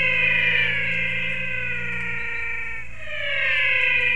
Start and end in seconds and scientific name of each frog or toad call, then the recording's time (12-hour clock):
0.0	4.1	Physalaemus albonotatus
2.0	2.8	Ameerega picta
5:45pm